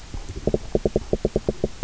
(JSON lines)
{"label": "biophony, knock", "recorder": "SoundTrap 300"}